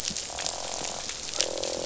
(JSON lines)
{"label": "biophony, croak", "recorder": "SoundTrap 500"}